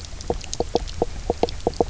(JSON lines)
{"label": "biophony, knock croak", "recorder": "SoundTrap 300"}